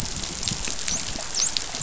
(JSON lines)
{"label": "biophony, dolphin", "recorder": "SoundTrap 500"}